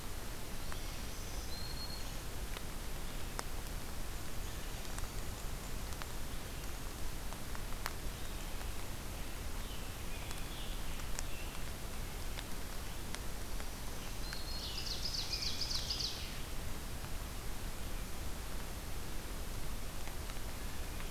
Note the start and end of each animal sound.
[0.40, 2.25] Black-throated Green Warbler (Setophaga virens)
[9.38, 11.64] Scarlet Tanager (Piranga olivacea)
[13.27, 14.86] Black-throated Green Warbler (Setophaga virens)
[14.06, 16.64] Ovenbird (Seiurus aurocapilla)
[14.57, 16.39] Scarlet Tanager (Piranga olivacea)

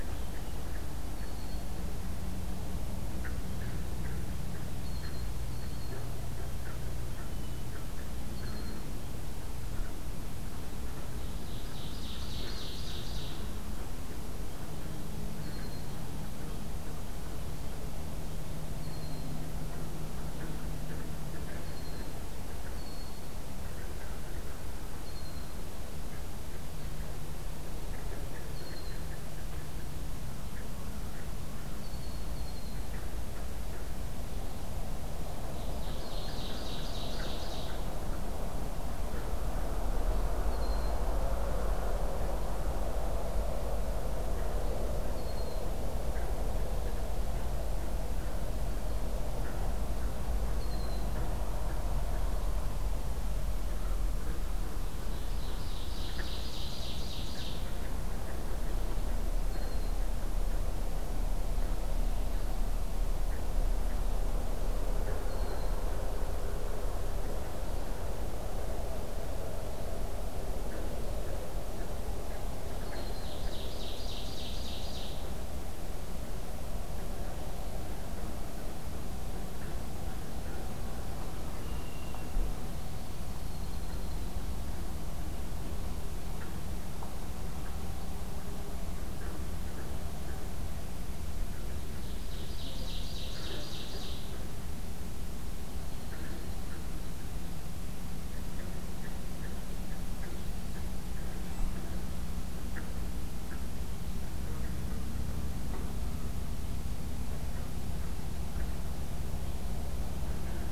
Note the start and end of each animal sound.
[1.08, 1.69] Red-winged Blackbird (Agelaius phoeniceus)
[4.71, 6.04] Red-winged Blackbird (Agelaius phoeniceus)
[7.11, 7.63] Red-winged Blackbird (Agelaius phoeniceus)
[8.26, 8.89] Red-winged Blackbird (Agelaius phoeniceus)
[11.12, 13.50] Ovenbird (Seiurus aurocapilla)
[15.34, 15.92] Red-winged Blackbird (Agelaius phoeniceus)
[18.68, 19.36] Red-winged Blackbird (Agelaius phoeniceus)
[21.56, 22.12] Red-winged Blackbird (Agelaius phoeniceus)
[22.72, 23.25] Red-winged Blackbird (Agelaius phoeniceus)
[24.99, 25.55] Red-winged Blackbird (Agelaius phoeniceus)
[28.44, 29.14] Red-winged Blackbird (Agelaius phoeniceus)
[31.69, 32.92] Red-winged Blackbird (Agelaius phoeniceus)
[35.55, 37.80] Ovenbird (Seiurus aurocapilla)
[40.40, 40.97] Red-winged Blackbird (Agelaius phoeniceus)
[45.01, 45.68] Red-winged Blackbird (Agelaius phoeniceus)
[50.53, 51.09] Red-winged Blackbird (Agelaius phoeniceus)
[54.94, 57.72] Ovenbird (Seiurus aurocapilla)
[59.43, 59.97] Red-winged Blackbird (Agelaius phoeniceus)
[65.28, 65.77] Red-winged Blackbird (Agelaius phoeniceus)
[72.82, 73.38] Red-winged Blackbird (Agelaius phoeniceus)
[72.92, 75.23] Ovenbird (Seiurus aurocapilla)
[81.55, 82.35] Red-winged Blackbird (Agelaius phoeniceus)
[83.05, 84.37] Red-winged Blackbird (Agelaius phoeniceus)
[92.08, 94.30] Ovenbird (Seiurus aurocapilla)
[95.78, 96.81] Red-winged Blackbird (Agelaius phoeniceus)

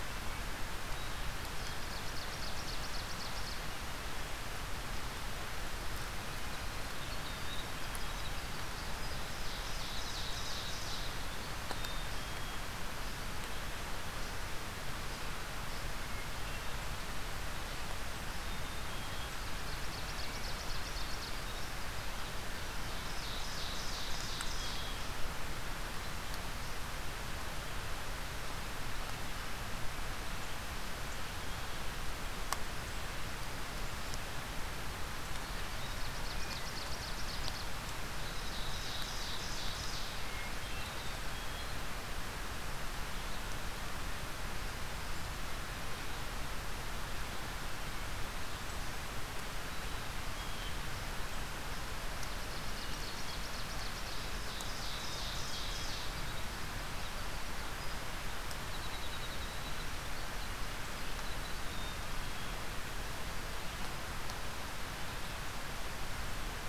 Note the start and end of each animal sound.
[1.39, 3.84] Ovenbird (Seiurus aurocapilla)
[6.32, 12.51] Winter Wren (Troglodytes hiemalis)
[8.71, 11.28] Ovenbird (Seiurus aurocapilla)
[11.69, 12.77] Black-capped Chickadee (Poecile atricapillus)
[18.20, 19.47] Black-capped Chickadee (Poecile atricapillus)
[19.43, 21.47] Ovenbird (Seiurus aurocapilla)
[22.84, 25.16] Ovenbird (Seiurus aurocapilla)
[35.69, 37.78] Ovenbird (Seiurus aurocapilla)
[38.04, 40.30] Ovenbird (Seiurus aurocapilla)
[39.78, 40.96] Hermit Thrush (Catharus guttatus)
[40.78, 41.69] Black-capped Chickadee (Poecile atricapillus)
[49.64, 50.82] Black-capped Chickadee (Poecile atricapillus)
[52.28, 56.35] Ovenbird (Seiurus aurocapilla)
[56.21, 61.76] Winter Wren (Troglodytes hiemalis)
[61.49, 62.73] Black-capped Chickadee (Poecile atricapillus)

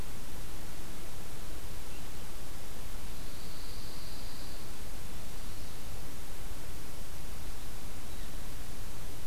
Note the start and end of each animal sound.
[2.91, 4.82] Pine Warbler (Setophaga pinus)

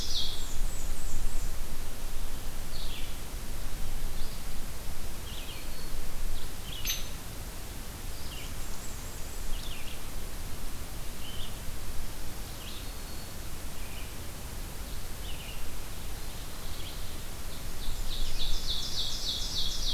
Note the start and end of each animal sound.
[0.00, 0.61] Ovenbird (Seiurus aurocapilla)
[0.00, 1.59] Blackburnian Warbler (Setophaga fusca)
[2.43, 19.93] Red-eyed Vireo (Vireo olivaceus)
[6.75, 7.14] Hairy Woodpecker (Dryobates villosus)
[8.23, 9.61] Blackburnian Warbler (Setophaga fusca)
[15.92, 19.93] Ovenbird (Seiurus aurocapilla)

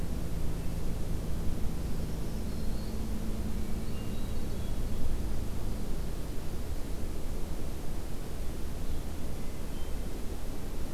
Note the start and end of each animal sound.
[1.84, 3.03] Black-throated Green Warbler (Setophaga virens)
[3.63, 5.18] Hermit Thrush (Catharus guttatus)
[9.25, 10.14] Hermit Thrush (Catharus guttatus)

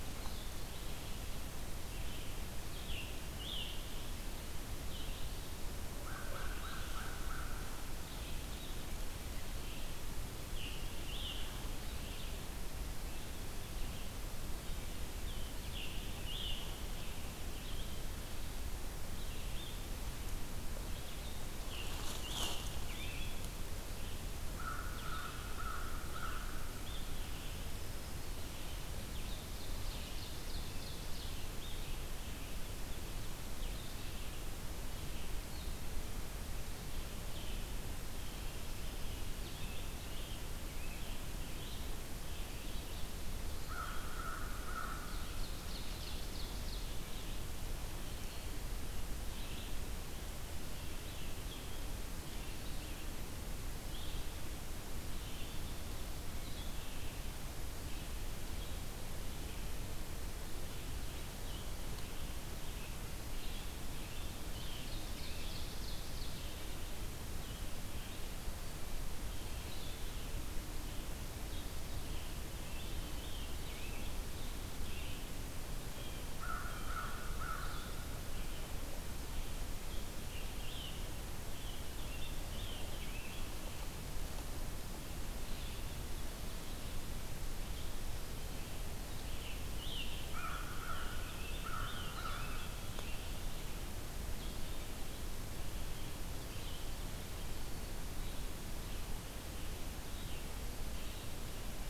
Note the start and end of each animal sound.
[0.00, 8.86] Red-eyed Vireo (Vireo olivaceus)
[2.53, 3.93] Scarlet Tanager (Piranga olivacea)
[5.90, 7.71] American Crow (Corvus brachyrhynchos)
[9.28, 66.69] Red-eyed Vireo (Vireo olivaceus)
[10.20, 11.57] Scarlet Tanager (Piranga olivacea)
[15.51, 16.71] Scarlet Tanager (Piranga olivacea)
[21.59, 23.64] Scarlet Tanager (Piranga olivacea)
[24.35, 26.66] American Crow (Corvus brachyrhynchos)
[26.88, 56.86] Blue-headed Vireo (Vireo solitarius)
[28.95, 31.56] Ovenbird (Seiurus aurocapilla)
[43.46, 45.32] American Crow (Corvus brachyrhynchos)
[45.03, 47.01] Ovenbird (Seiurus aurocapilla)
[64.53, 66.56] Ovenbird (Seiurus aurocapilla)
[67.00, 101.89] Red-eyed Vireo (Vireo olivaceus)
[71.28, 74.10] Scarlet Tanager (Piranga olivacea)
[76.08, 78.01] American Crow (Corvus brachyrhynchos)
[79.87, 83.53] Scarlet Tanager (Piranga olivacea)
[89.27, 93.02] Scarlet Tanager (Piranga olivacea)
[90.06, 92.87] American Crow (Corvus brachyrhynchos)

